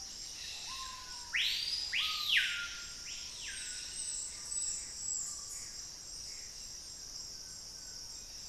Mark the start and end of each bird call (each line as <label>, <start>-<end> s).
Screaming Piha (Lipaugus vociferans), 0.0-4.5 s
Gray Antbird (Cercomacra cinerascens), 4.2-6.7 s
Collared Trogon (Trogon collaris), 6.7-8.4 s